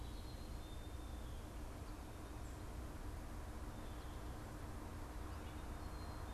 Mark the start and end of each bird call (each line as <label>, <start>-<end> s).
unidentified bird, 0.0-6.3 s